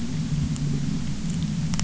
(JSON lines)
{"label": "anthrophony, boat engine", "recorder": "SoundTrap 300"}